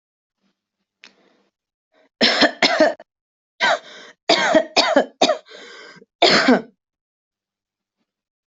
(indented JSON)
{
  "expert_labels": [
    {
      "quality": "good",
      "cough_type": "dry",
      "dyspnea": false,
      "wheezing": false,
      "stridor": false,
      "choking": false,
      "congestion": false,
      "nothing": true,
      "diagnosis": "upper respiratory tract infection",
      "severity": "mild"
    }
  ]
}